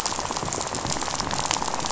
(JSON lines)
{"label": "biophony, rattle", "recorder": "SoundTrap 500"}